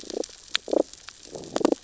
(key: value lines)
label: biophony, growl
recorder: SoundTrap 600 or HydroMoth

label: biophony, damselfish
recorder: SoundTrap 600 or HydroMoth